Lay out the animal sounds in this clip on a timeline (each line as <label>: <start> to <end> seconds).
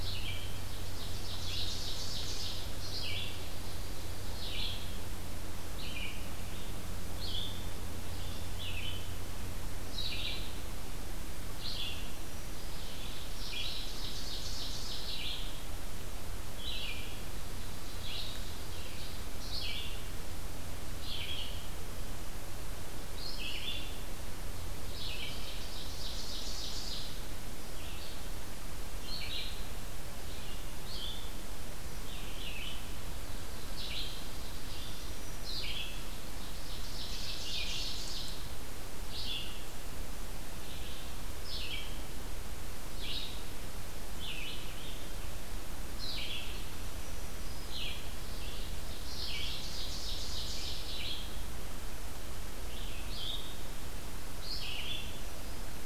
Ovenbird (Seiurus aurocapilla): 0.0 to 4.6 seconds
Red-eyed Vireo (Vireo olivaceus): 0.0 to 55.9 seconds
Ovenbird (Seiurus aurocapilla): 13.1 to 15.4 seconds
Ovenbird (Seiurus aurocapilla): 17.3 to 19.8 seconds
Ovenbird (Seiurus aurocapilla): 25.2 to 27.3 seconds
Ovenbird (Seiurus aurocapilla): 33.0 to 35.3 seconds
Ovenbird (Seiurus aurocapilla): 35.8 to 39.0 seconds
Black-throated Green Warbler (Setophaga virens): 46.4 to 47.9 seconds
Ovenbird (Seiurus aurocapilla): 48.2 to 51.1 seconds
Black-throated Green Warbler (Setophaga virens): 54.6 to 55.8 seconds